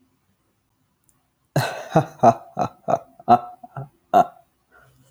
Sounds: Laughter